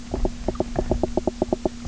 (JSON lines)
{"label": "biophony", "recorder": "SoundTrap 300"}